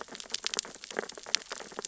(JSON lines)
{"label": "biophony, sea urchins (Echinidae)", "recorder": "SoundTrap 600 or HydroMoth"}